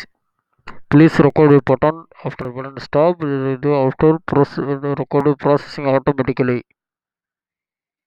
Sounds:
Laughter